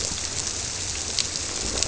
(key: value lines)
label: biophony
recorder: SoundTrap 300